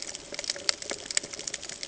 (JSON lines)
{"label": "ambient", "recorder": "HydroMoth"}